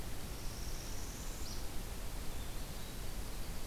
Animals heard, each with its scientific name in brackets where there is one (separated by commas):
Northern Parula (Setophaga americana), Winter Wren (Troglodytes hiemalis)